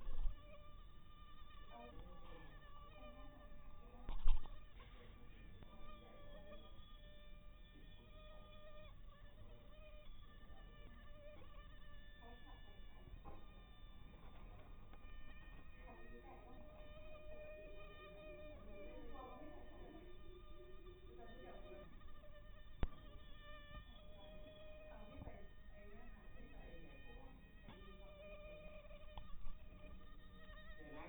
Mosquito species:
mosquito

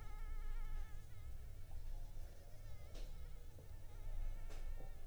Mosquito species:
Anopheles arabiensis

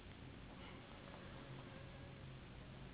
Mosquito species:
Anopheles gambiae s.s.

